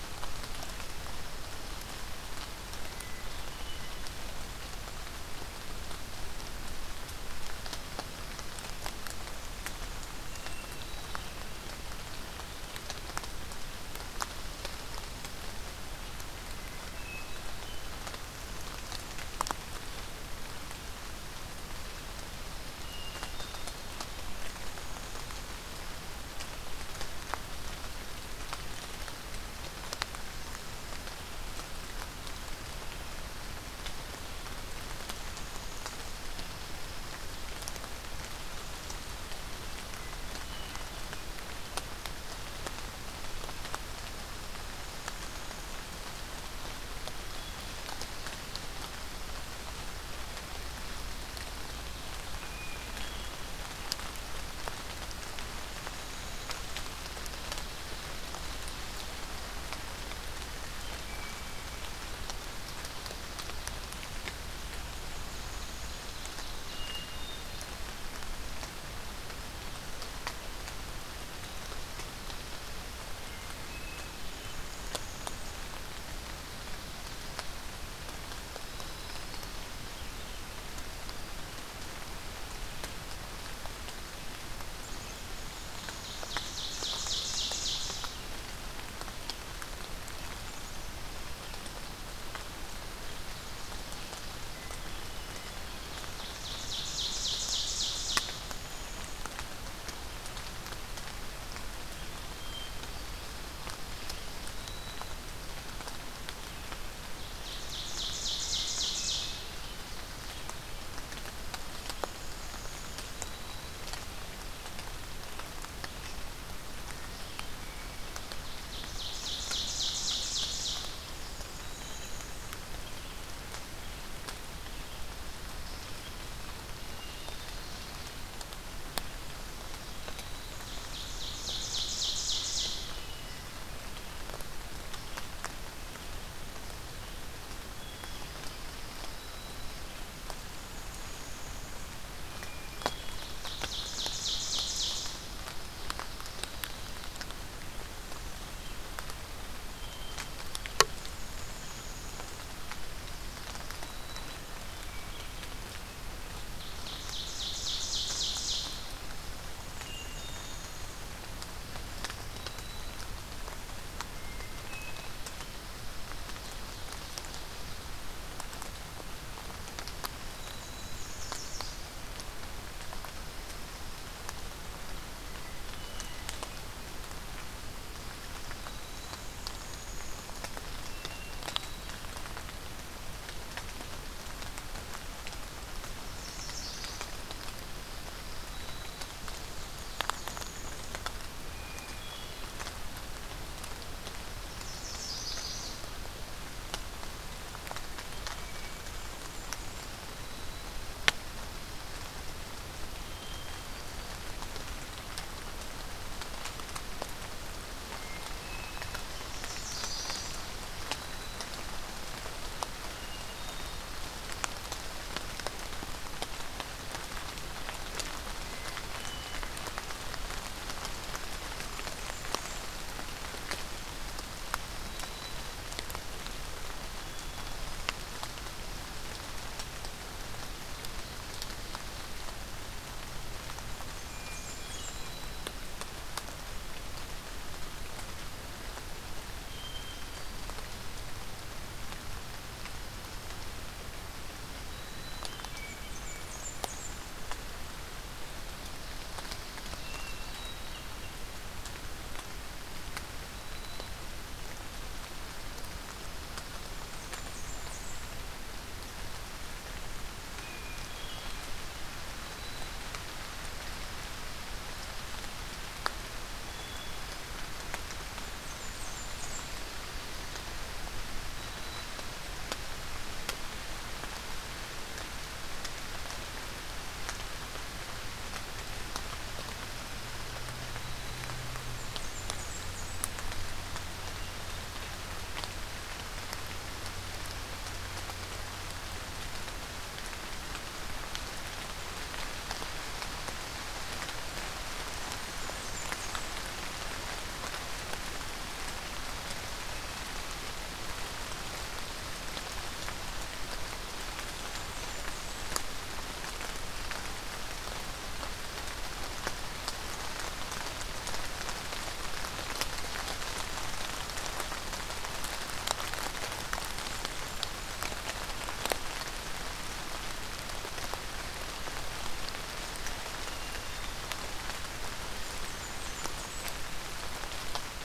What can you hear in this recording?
Hermit Thrush, Golden-crowned Kinglet, Ovenbird, Black-throated Green Warbler, Yellow Warbler, Blackburnian Warbler